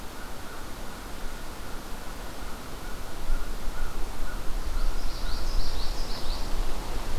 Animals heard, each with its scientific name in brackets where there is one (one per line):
American Crow (Corvus brachyrhynchos)
Common Yellowthroat (Geothlypis trichas)